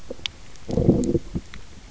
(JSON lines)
{"label": "biophony, low growl", "recorder": "SoundTrap 300"}